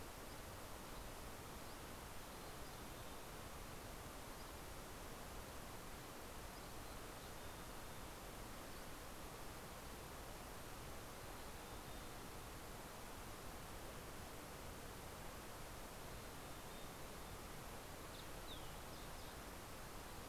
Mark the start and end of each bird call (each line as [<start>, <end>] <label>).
[0.20, 9.60] Dusky Flycatcher (Empidonax oberholseri)
[1.50, 3.60] Mountain Chickadee (Poecile gambeli)
[6.60, 8.60] Mountain Chickadee (Poecile gambeli)
[11.10, 12.50] Mountain Chickadee (Poecile gambeli)
[15.80, 17.50] Mountain Chickadee (Poecile gambeli)
[17.60, 20.10] Fox Sparrow (Passerella iliaca)